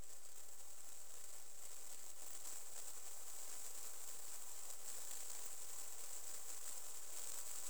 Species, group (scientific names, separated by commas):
Platycleis albopunctata, Orthoptera